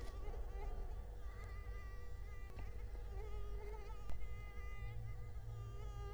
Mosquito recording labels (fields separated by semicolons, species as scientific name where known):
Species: Culex quinquefasciatus; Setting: cup